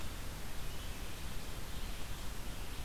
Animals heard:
forest ambience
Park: Marsh-Billings-Rockefeller National Historical Park